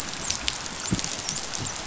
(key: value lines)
label: biophony, dolphin
recorder: SoundTrap 500